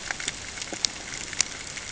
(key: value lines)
label: ambient
recorder: HydroMoth